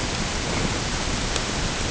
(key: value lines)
label: ambient
recorder: HydroMoth